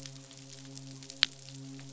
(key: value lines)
label: biophony, midshipman
recorder: SoundTrap 500